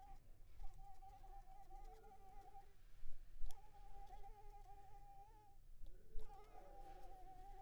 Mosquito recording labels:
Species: Anopheles arabiensis; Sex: female; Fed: unfed; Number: one; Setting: cup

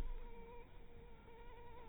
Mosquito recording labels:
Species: Anopheles minimus; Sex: female; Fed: blood-fed; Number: one; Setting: cup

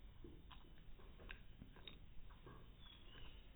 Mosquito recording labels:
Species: no mosquito; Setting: cup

